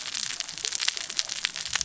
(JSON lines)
{"label": "biophony, cascading saw", "recorder": "SoundTrap 600 or HydroMoth"}